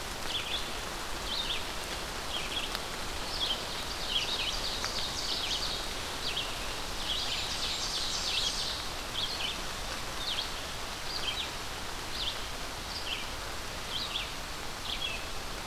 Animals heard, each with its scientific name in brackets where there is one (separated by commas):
Ovenbird (Seiurus aurocapilla), Red-eyed Vireo (Vireo olivaceus), Blackburnian Warbler (Setophaga fusca)